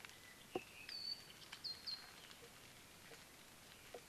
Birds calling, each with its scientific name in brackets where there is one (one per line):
Apapane (Himatione sanguinea)